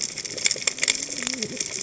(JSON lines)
{"label": "biophony, cascading saw", "recorder": "HydroMoth"}